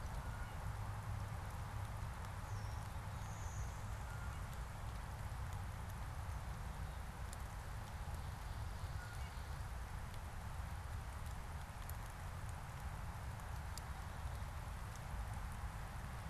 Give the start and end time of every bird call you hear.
[3.12, 4.52] Blue-winged Warbler (Vermivora cyanoptera)
[8.82, 9.42] Blue Jay (Cyanocitta cristata)

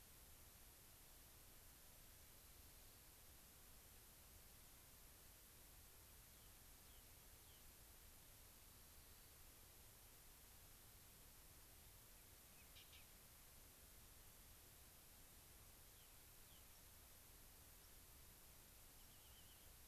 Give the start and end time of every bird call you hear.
[2.33, 3.12] Rock Wren (Salpinctes obsoletus)
[6.03, 7.72] Rock Wren (Salpinctes obsoletus)
[8.43, 9.43] Rock Wren (Salpinctes obsoletus)
[12.53, 12.62] unidentified bird
[15.72, 16.73] Rock Wren (Salpinctes obsoletus)
[16.62, 16.82] White-crowned Sparrow (Zonotrichia leucophrys)
[17.73, 17.93] White-crowned Sparrow (Zonotrichia leucophrys)
[18.93, 19.73] Rock Wren (Salpinctes obsoletus)
[19.02, 19.12] White-crowned Sparrow (Zonotrichia leucophrys)

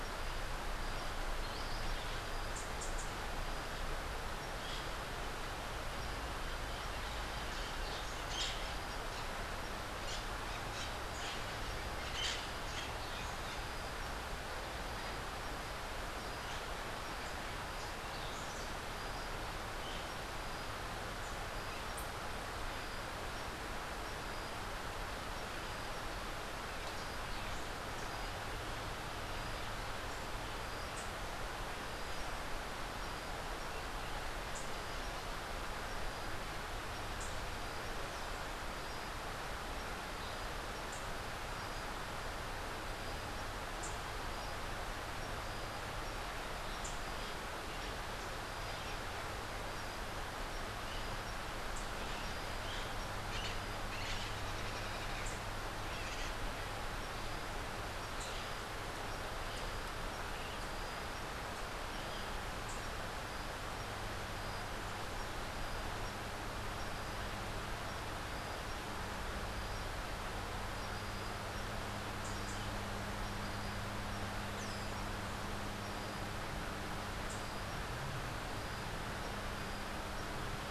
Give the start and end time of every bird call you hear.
[2.36, 3.16] Rufous-capped Warbler (Basileuterus rufifrons)
[7.76, 12.96] Crimson-fronted Parakeet (Psittacara finschi)
[30.66, 31.26] Rufous-capped Warbler (Basileuterus rufifrons)
[36.96, 37.56] Rufous-capped Warbler (Basileuterus rufifrons)
[40.66, 41.26] Rufous-capped Warbler (Basileuterus rufifrons)
[43.56, 44.26] Rufous-capped Warbler (Basileuterus rufifrons)
[46.56, 47.26] Rufous-capped Warbler (Basileuterus rufifrons)
[50.76, 62.56] Crimson-fronted Parakeet (Psittacara finschi)
[51.46, 52.16] Rufous-capped Warbler (Basileuterus rufifrons)
[54.96, 55.56] Rufous-capped Warbler (Basileuterus rufifrons)
[57.96, 58.56] Rufous-capped Warbler (Basileuterus rufifrons)
[62.46, 63.06] Rufous-capped Warbler (Basileuterus rufifrons)
[72.06, 72.66] Rufous-capped Warbler (Basileuterus rufifrons)
[74.46, 75.06] Rose-throated Becard (Pachyramphus aglaiae)
[76.96, 77.66] Rufous-capped Warbler (Basileuterus rufifrons)

